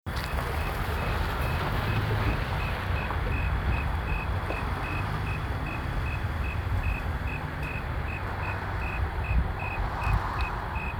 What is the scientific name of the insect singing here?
Oecanthus fultoni